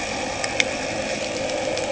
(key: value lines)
label: anthrophony, boat engine
recorder: HydroMoth